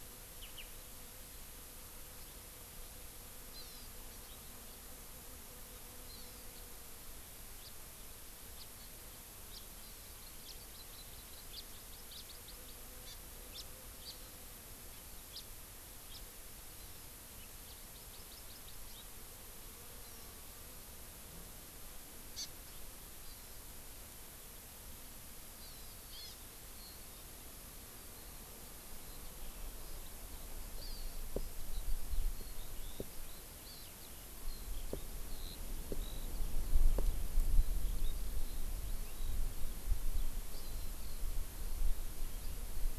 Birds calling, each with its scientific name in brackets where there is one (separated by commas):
Hawaii Amakihi (Chlorodrepanis virens), House Finch (Haemorhous mexicanus), Eurasian Skylark (Alauda arvensis)